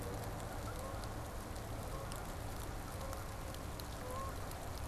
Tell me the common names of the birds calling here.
Canada Goose